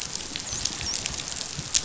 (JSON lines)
{"label": "biophony, dolphin", "recorder": "SoundTrap 500"}